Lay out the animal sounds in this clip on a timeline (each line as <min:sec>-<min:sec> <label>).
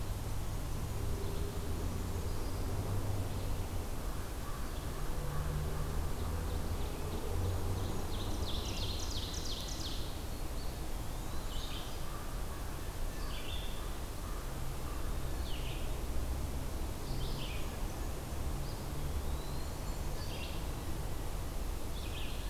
0:06.8-0:10.2 Ovenbird (Seiurus aurocapilla)
0:10.5-0:11.7 Eastern Wood-Pewee (Contopus virens)
0:11.3-0:22.5 Red-eyed Vireo (Vireo olivaceus)
0:18.9-0:19.8 Eastern Wood-Pewee (Contopus virens)